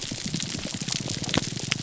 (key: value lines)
label: biophony, grouper groan
recorder: SoundTrap 300